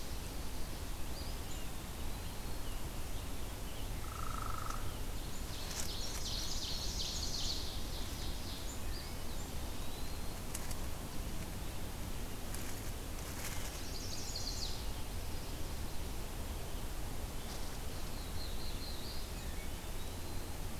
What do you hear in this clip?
Eastern Wood-Pewee, Hairy Woodpecker, Ovenbird, Chestnut-sided Warbler, Black-throated Blue Warbler